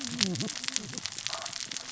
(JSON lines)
{"label": "biophony, cascading saw", "recorder": "SoundTrap 600 or HydroMoth"}